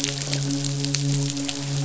{"label": "biophony, midshipman", "recorder": "SoundTrap 500"}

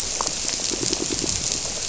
{"label": "biophony, squirrelfish (Holocentrus)", "recorder": "SoundTrap 300"}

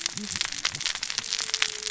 {"label": "biophony, cascading saw", "recorder": "SoundTrap 600 or HydroMoth"}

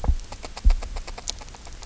{"label": "biophony, grazing", "recorder": "SoundTrap 300"}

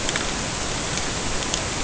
{"label": "ambient", "recorder": "HydroMoth"}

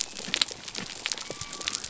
{"label": "biophony", "recorder": "SoundTrap 300"}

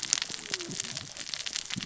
{"label": "biophony, cascading saw", "recorder": "SoundTrap 600 or HydroMoth"}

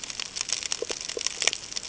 {"label": "ambient", "recorder": "HydroMoth"}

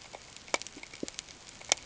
{"label": "ambient", "recorder": "HydroMoth"}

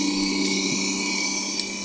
{"label": "anthrophony, boat engine", "recorder": "HydroMoth"}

